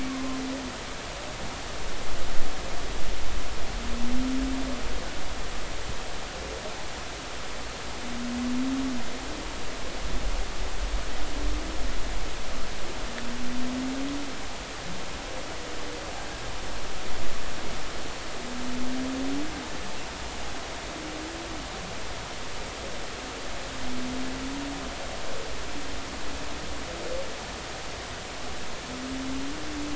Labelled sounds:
0.1	0.4	humpback whale, 0.99 to 1.2 kHz

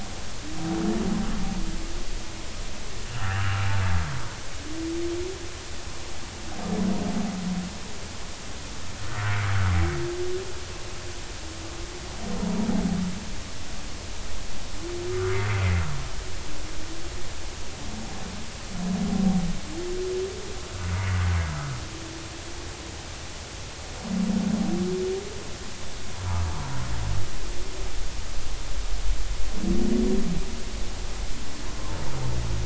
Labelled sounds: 3.3	3.7	humpback whale, 1.1 to 1.9 kHz
9.1	9.4	humpback whale, 1.3 to 1.6 kHz

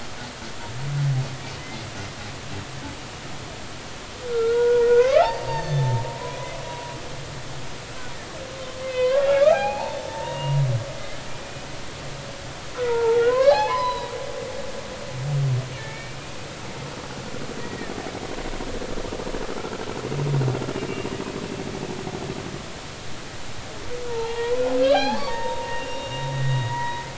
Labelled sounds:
1.6	1.9	humpback whale, 2.0 to 2.2 kHz
4.3	6.5	humpback whale, 0.83 to 6.4 kHz
8.8	10.6	humpback whale, 0.80 to 4.2 kHz
11.4	11.7	humpback whale, 2.4 to 2.6 kHz
12.7	14.1	humpback whale, 0.80 to 4.4 kHz
15.8	16.2	humpback whale, 1.7 to 2.4 kHz
17.6	17.9	humpback whale, 1.7 to 2.0 kHz
24.1	27.1	humpback whale, 0.80 to 5.0 kHz

